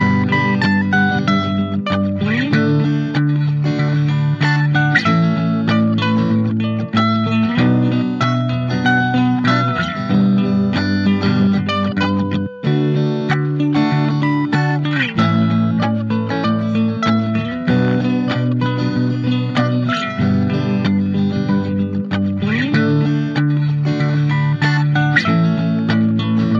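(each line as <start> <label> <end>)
0.0 An electric guitar plays smoothly and steadily with a clean tone. 26.5
0.2 A clean electric guitar plays a smooth, rhythmic phrase. 5.4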